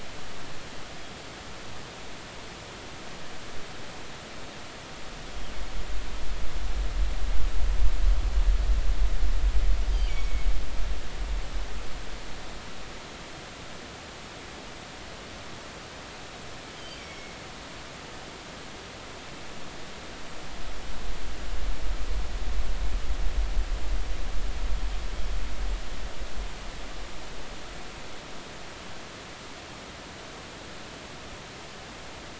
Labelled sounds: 10.1	10.5	killer whale, northern resident, G clan, GG subclan, call N23ii, 2.1 to 2.5 kHz
16.8	17.4	killer whale, northern resident, G clan, GG subclan, call N23ii, 2.1 to 3.2 kHz

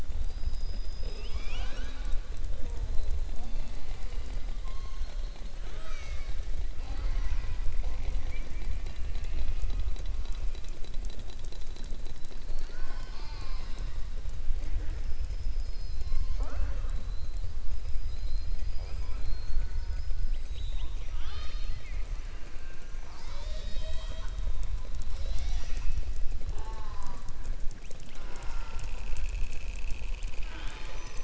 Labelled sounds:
20.2	22.1	killer whale, southern resident, 0.81 to 6.2 kHz

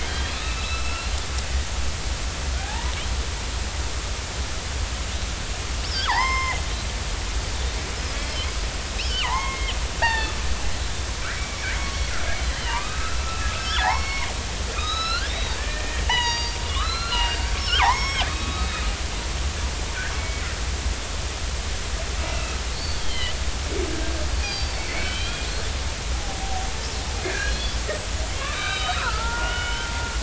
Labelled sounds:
0.0	1.1	killer whale, northern resident, 2.5 to 3.4 kHz
2.6	3.0	killer whale, northern resident, 0.80 to 1.1 kHz
5.9	6.6	killer whale, northern resident, 0.80 to 5.3 kHz
8.1	8.5	killer whale, northern resident, 3.0 to 3.4 kHz
9.0	9.7	killer whale, northern resident, 0.80 to 5.4 kHz
10.0	10.3	killer whale, northern resident, 1.4 to 4.7 kHz
11.2	12.1	killer whale, northern resident, 2.2 to 4.5 kHz
12.5	14.3	killer whale, northern resident, 0.80 to 4.4 kHz
14.8	18.7	killer whale, northern resident, 0.80 to 6.8 kHz
20.1	20.4	killer whale, northern resident, 2.2 to 2.3 kHz
22.3	23.3	killer whale, northern resident, 1.9 to 4.6 kHz
24.4	25.7	killer whale, northern resident, 2.1 to 4.9 kHz
27.2	27.8	killer whale, northern resident, 1.5 to 4.3 kHz
28.3	29.9	killer whale, northern resident, 0.83 to 5.0 kHz

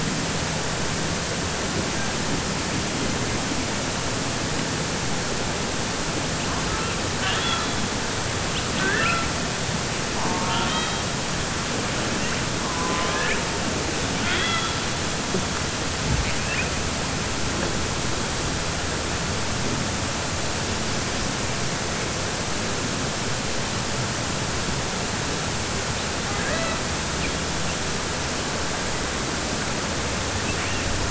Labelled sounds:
10.1	11.0	killer whale, southern resident, 0.69 to 5.1 kHz
14.1	14.8	killer whale, southern resident, 1.3 to 4.7 kHz

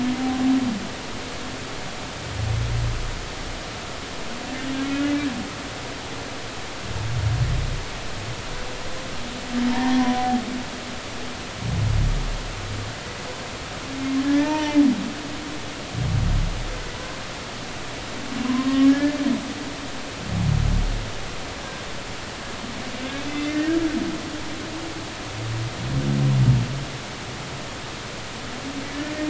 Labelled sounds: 4.8	5.1	humpback whale, 1.3 to 1.5 kHz
9.7	10.3	humpback whale, 0.90 to 1.9 kHz
14.2	14.8	humpback whale, 0.83 to 3.1 kHz
16.9	17.2	humpback whale, 0.96 to 1.1 kHz
18.4	19.1	humpback whale, 0.96 to 1.8 kHz
21.6	21.8	humpback whale, 1.5 to 1.7 kHz
23.3	23.7	humpback whale, 1.7 to 2.1 kHz

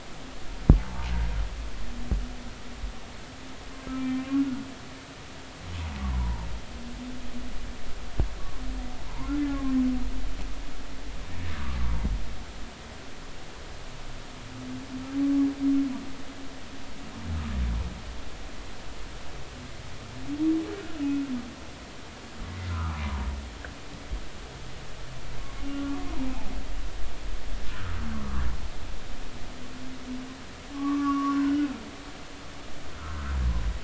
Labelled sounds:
0.7	1.1	humpback whale, 0.83 to 0.96 kHz
3.9	4.2	humpback whale, 2.3 to 2.4 kHz
6.1	6.5	humpback whale, 0.86 to 1.1 kHz
9.1	9.6	humpback whale, 0.83 to 1.8 kHz
20.8	21.2	humpback whale, 1.3 to 2.6 kHz
22.7	23.0	humpback whale, 0.93 to 1.5 kHz
25.7	26.0	humpback whale, 1.3 to 1.4 kHz
27.7	28.4	humpback whale, 1.0 to 1.6 kHz
30.7	31.5	humpback whale, 0.93 to 1.2 kHz

